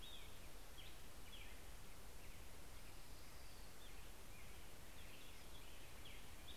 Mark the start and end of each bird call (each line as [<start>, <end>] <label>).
[0.00, 6.57] American Robin (Turdus migratorius)
[5.73, 6.57] Common Raven (Corvus corax)